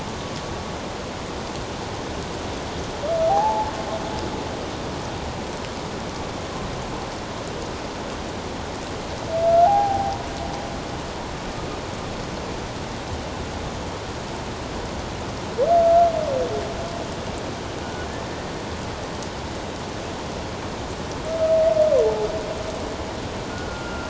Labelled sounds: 3.3	3.7	humpback whale, 0.78 to 0.94 kHz
9.6	10.2	humpback whale, 0.78 to 0.91 kHz
23.5	24.0	humpback whale, 1.3 to 1.5 kHz

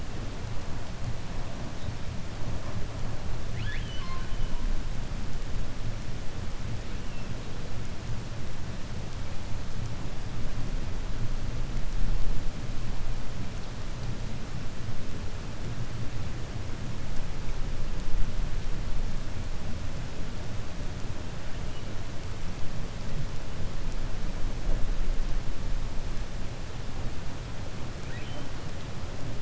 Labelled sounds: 3.4	4.4	killer whale, 1.1 to 6.0 kHz
28.0	28.5	killer whale, 1.5 to 3.9 kHz

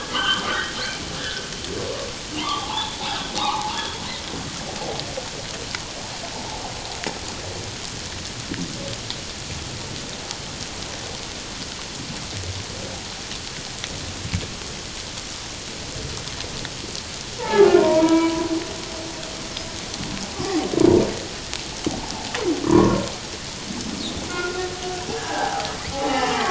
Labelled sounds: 1.2	1.4	humpback whale, 1.4 to 1.8 kHz
2.4	3.0	humpback whale, 0.78 to 3.6 kHz
3.4	4.0	humpback whale, 0.78 to 3.4 kHz
17.4	18.5	humpback whale, 0.78 to 2.4 kHz
22.6	23.0	humpback whale, 0.94 to 1.3 kHz
24.3	24.6	humpback whale, 1.3 to 1.5 kHz
25.2	26.4	humpback whale, 0.78 to 3.0 kHz

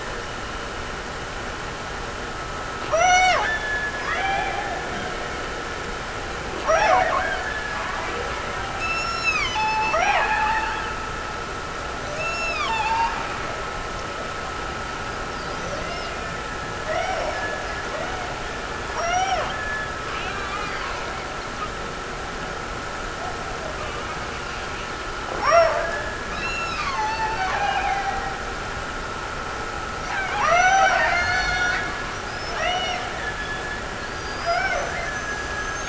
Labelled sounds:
2.9	4.9	killer whale, Bigg's (transient), Gulf of Alaska transient, 0.42 to 8.0 kHz
6.5	7.8	killer whale, Bigg's (transient), Gulf of Alaska transient, 0.57 to 5.9 kHz
8.8	11.1	killer whale, Bigg's (transient), Gulf of Alaska transient, 0.48 to 6.9 kHz
12.1	13.3	killer whale, Bigg's (transient), Gulf of Alaska transient, 0.65 to 6.8 kHz
15.7	20.2	killer whale, Bigg's (transient), Gulf of Alaska transient, 0.34 to 3.2 kHz
25.3	28.8	killer whale, Bigg's (transient), Gulf of Alaska transient, 0.34 to 7.0 kHz
30.1	31.9	killer whale, Bigg's (transient), Gulf of Alaska transient, 0.44 to 5.9 kHz
32.6	34.1	killer whale, Bigg's (transient), Gulf of Alaska transient, 0.32 to 6.1 kHz
34.4	35.8	killer whale, Bigg's (transient), Gulf of Alaska transient, 0.53 to 2.5 kHz

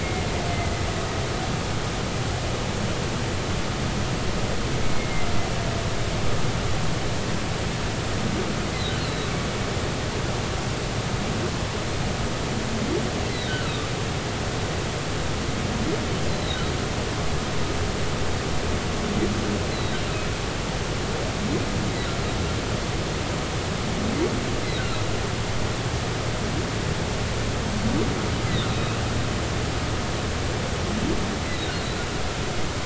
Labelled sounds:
0.0	0.8	humpback whale, 2.0 to 2.2 kHz
5.0	5.3	humpback whale, 2.0 to 2.3 kHz
9.0	9.3	humpback whale, 3.8 to 4.1 kHz
13.5	13.9	humpback whale, 1.2 to 1.6 kHz
16.3	16.6	humpback whale, 3.7 to 4.2 kHz
19.7	20.0	humpback whale, 3.6 to 4.2 kHz
31.5	31.7	humpback whale, 3.6 to 4.1 kHz

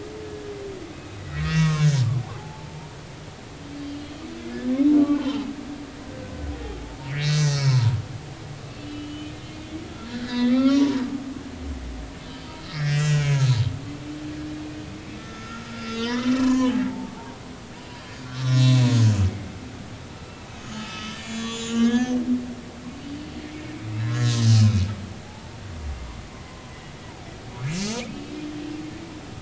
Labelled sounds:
1.2	2.9	humpback whale, 0.80 to 6.8 kHz
5.0	5.4	humpback whale, 0.99 to 1.5 kHz
7.1	8.0	humpback whale, 0.86 to 6.0 kHz
8.8	9.3	humpback whale, 2.9 to 3.2 kHz
10.1	11.1	humpback whale, 0.86 to 4.2 kHz
12.7	13.5	humpback whale, 1.6 to 7.1 kHz
15.2	17.1	humpback whale, 0.80 to 5.0 kHz
18.0	18.9	humpback whale, 1.0 to 4.8 kHz
20.1	22.2	humpback whale, 1.2 to 7.4 kHz
24.0	24.9	humpback whale, 1.6 to 6.7 kHz
25.2	26.7	humpback whale, 0.80 to 1.1 kHz
27.7	28.3	humpback whale, 2.1 to 6.8 kHz

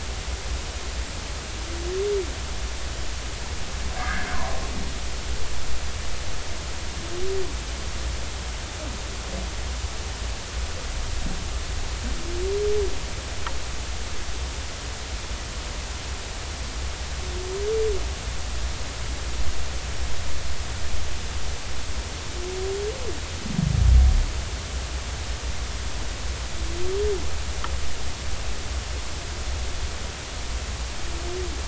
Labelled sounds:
4.0	4.3	humpback whale, 1.4 to 1.8 kHz

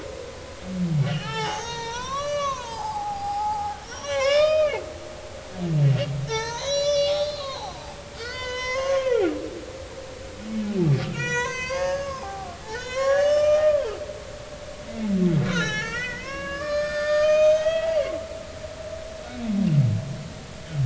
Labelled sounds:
1.0	4.8	humpback whale, 0.80 to 6.7 kHz
6.3	9.3	humpback whale, 0.80 to 7.6 kHz
11.1	13.9	humpback whale, 0.80 to 6.9 kHz
15.4	18.0	humpback whale, 0.80 to 6.7 kHz

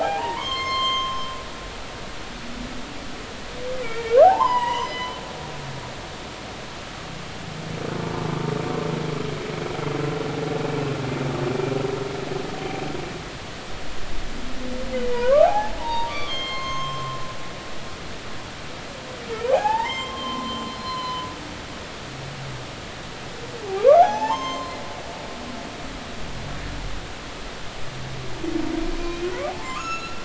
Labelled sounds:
0.0	1.2	humpback whale, 0.80 to 7.4 kHz
3.8	5.2	humpback whale, 0.80 to 5.2 kHz
14.9	17.2	humpback whale, 0.80 to 6.4 kHz
19.5	21.3	humpback whale, 0.80 to 7.4 kHz
23.8	24.8	humpback whale, 0.80 to 7.4 kHz
29.0	30.2	humpback whale, 0.96 to 8.0 kHz

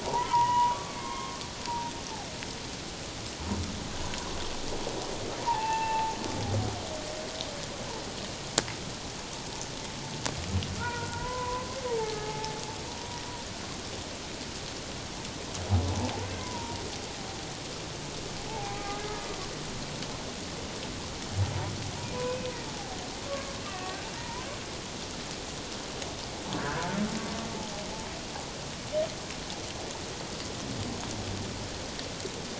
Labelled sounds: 0.0	1.4	humpback whale, 0.78 to 3.0 kHz
1.7	1.9	humpback whale, 0.84 to 1.0 kHz
5.4	6.2	humpback whale, 0.78 to 2.8 kHz
10.8	12.6	humpback whale, 0.81 to 1.8 kHz
13.0	13.2	humpback whale, 0.94 to 1.0 kHz
16.2	16.8	humpback whale, 0.88 to 2.2 kHz
18.5	18.8	humpback whale, 0.78 to 0.94 kHz
22.2	22.5	humpback whale, 2.4 to 2.6 kHz
23.3	24.5	humpback whale, 0.88 to 2.8 kHz
26.6	26.9	humpback whale, 1.3 to 1.8 kHz

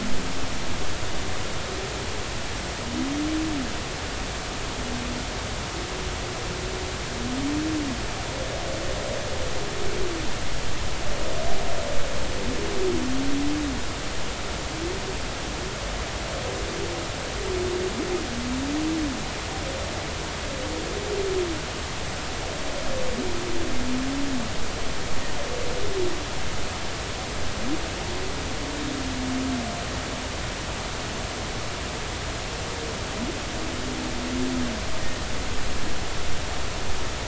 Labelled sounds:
35.0	35.2	humpback whale, 1.8 to 1.9 kHz

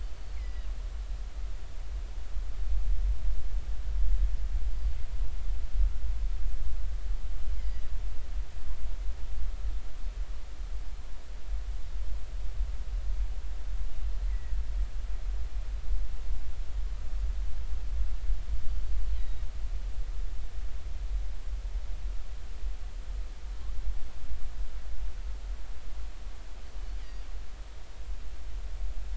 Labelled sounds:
0.1	0.7	killer whale, northern resident, G clan, GG subclan, call N23ii, 1.9 to 5.1 kHz
4.7	4.9	killer whale, northern resident, G clan, 4.6 to 5.0 kHz
7.6	7.8	killer whale, northern resident, G clan, GG subclan, call N23ii, 1.9 to 2.3 kHz
14.2	14.6	killer whale, northern resident, G clan, GG subclan, call N23ii, 1.8 to 2.2 kHz
19.2	19.4	killer whale, northern resident, G clan, GG subclan, call N23ii, 3.7 to 3.9 kHz

